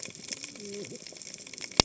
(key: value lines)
label: biophony, cascading saw
recorder: HydroMoth